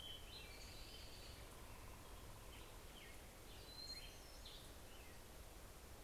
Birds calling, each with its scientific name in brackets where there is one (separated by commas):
American Robin (Turdus migratorius), Hermit Thrush (Catharus guttatus)